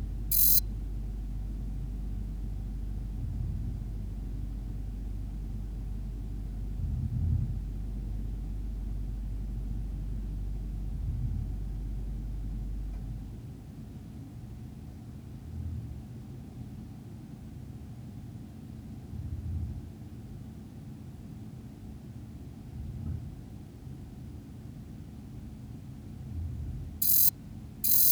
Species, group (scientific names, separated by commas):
Rhacocleis germanica, Orthoptera